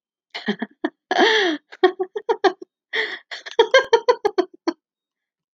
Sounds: Laughter